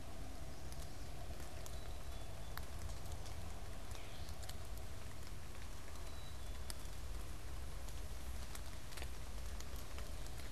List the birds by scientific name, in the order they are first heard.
Poecile atricapillus, Dumetella carolinensis